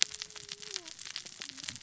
{"label": "biophony, cascading saw", "recorder": "SoundTrap 600 or HydroMoth"}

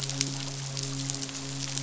{"label": "biophony, midshipman", "recorder": "SoundTrap 500"}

